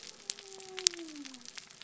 {"label": "biophony", "recorder": "SoundTrap 300"}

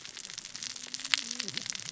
{"label": "biophony, cascading saw", "recorder": "SoundTrap 600 or HydroMoth"}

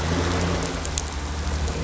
{"label": "anthrophony, boat engine", "recorder": "SoundTrap 500"}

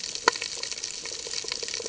{"label": "ambient", "recorder": "HydroMoth"}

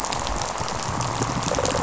{"label": "biophony, rattle response", "recorder": "SoundTrap 500"}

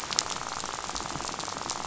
{"label": "biophony, rattle", "recorder": "SoundTrap 500"}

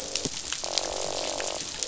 {"label": "biophony, croak", "recorder": "SoundTrap 500"}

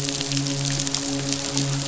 {"label": "biophony, midshipman", "recorder": "SoundTrap 500"}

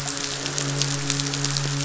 {"label": "biophony, midshipman", "recorder": "SoundTrap 500"}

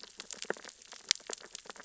{"label": "biophony, sea urchins (Echinidae)", "recorder": "SoundTrap 600 or HydroMoth"}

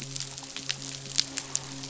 {"label": "biophony, midshipman", "recorder": "SoundTrap 500"}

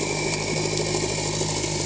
{"label": "anthrophony, boat engine", "recorder": "HydroMoth"}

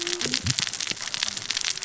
{"label": "biophony, cascading saw", "recorder": "SoundTrap 600 or HydroMoth"}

